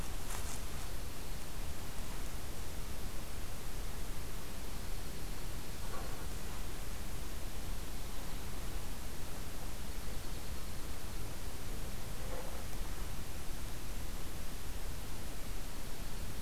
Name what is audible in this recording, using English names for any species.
Dark-eyed Junco